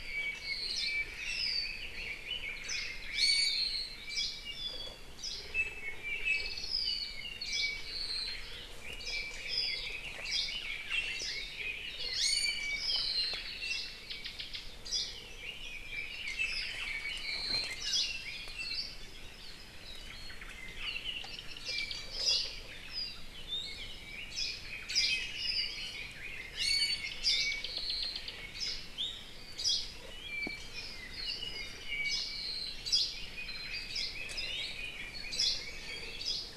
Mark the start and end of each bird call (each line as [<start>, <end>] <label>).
[0.00, 2.00] Apapane (Himatione sanguinea)
[0.60, 1.00] Hawaii Creeper (Loxops mana)
[0.70, 3.20] Red-billed Leiothrix (Leiothrix lutea)
[2.60, 3.00] Hawaii Creeper (Loxops mana)
[3.10, 3.80] Iiwi (Drepanis coccinea)
[3.90, 5.00] Apapane (Himatione sanguinea)
[4.00, 4.50] Hawaii Creeper (Loxops mana)
[5.20, 5.50] Hawaii Creeper (Loxops mana)
[5.50, 10.00] Apapane (Himatione sanguinea)
[7.40, 7.80] Hawaii Creeper (Loxops mana)
[8.80, 11.80] Red-billed Leiothrix (Leiothrix lutea)
[9.00, 9.30] Hawaii Creeper (Loxops mana)
[10.20, 10.60] Hawaii Creeper (Loxops mana)
[11.10, 11.60] Hawaii Creeper (Loxops mana)
[12.00, 13.50] Apapane (Himatione sanguinea)
[12.10, 13.00] Iiwi (Drepanis coccinea)
[13.50, 14.10] Iiwi (Drepanis coccinea)
[14.80, 15.30] Hawaii Creeper (Loxops mana)
[15.30, 18.90] Red-billed Leiothrix (Leiothrix lutea)
[16.80, 17.80] Apapane (Himatione sanguinea)
[17.70, 18.20] Hawaii Creeper (Loxops mana)
[18.50, 19.10] Hawaii Akepa (Loxops coccineus)
[20.00, 20.70] Omao (Myadestes obscurus)
[20.50, 22.10] Apapane (Himatione sanguinea)
[22.10, 22.70] Hawaii Creeper (Loxops mana)
[22.80, 23.40] Apapane (Himatione sanguinea)
[23.40, 24.00] Iiwi (Drepanis coccinea)
[23.60, 27.70] Red-billed Leiothrix (Leiothrix lutea)
[24.20, 25.30] Hawaii Creeper (Loxops mana)
[24.60, 25.90] Apapane (Himatione sanguinea)
[26.50, 27.20] Iiwi (Drepanis coccinea)
[26.90, 28.40] Apapane (Himatione sanguinea)
[27.20, 27.70] Hawaii Akepa (Loxops coccineus)
[28.50, 28.90] Hawaii Creeper (Loxops mana)
[28.90, 29.40] Iiwi (Drepanis coccinea)
[29.50, 30.00] Hawaii Creeper (Loxops mana)
[30.10, 31.10] Apapane (Himatione sanguinea)
[31.50, 32.90] Apapane (Himatione sanguinea)
[32.00, 32.40] Hawaii Creeper (Loxops mana)
[32.80, 33.40] Hawaii Creeper (Loxops mana)
[33.10, 36.40] Red-billed Leiothrix (Leiothrix lutea)
[33.80, 34.20] Hawaii Creeper (Loxops mana)
[35.20, 35.70] Hawaii Creeper (Loxops mana)
[35.80, 36.20] Iiwi (Drepanis coccinea)
[36.10, 36.50] Hawaii Creeper (Loxops mana)